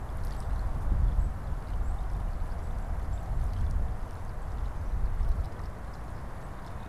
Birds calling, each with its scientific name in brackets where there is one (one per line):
unidentified bird